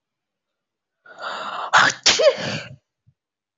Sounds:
Sneeze